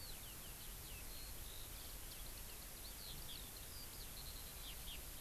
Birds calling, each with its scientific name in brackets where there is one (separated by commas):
Eurasian Skylark (Alauda arvensis)